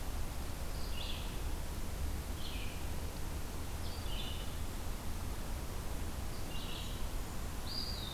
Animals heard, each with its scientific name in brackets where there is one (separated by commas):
Eastern Wood-Pewee (Contopus virens), Red-eyed Vireo (Vireo olivaceus)